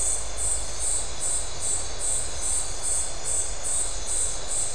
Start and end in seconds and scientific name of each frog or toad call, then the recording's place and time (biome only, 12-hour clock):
none
Atlantic Forest, 11:30pm